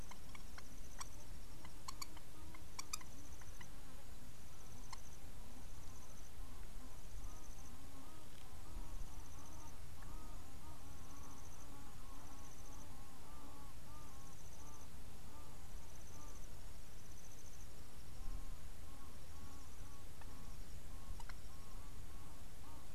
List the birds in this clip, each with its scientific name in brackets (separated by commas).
Egyptian Goose (Alopochen aegyptiaca), Long-toed Lapwing (Vanellus crassirostris)